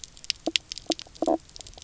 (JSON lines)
{"label": "biophony, knock croak", "recorder": "SoundTrap 300"}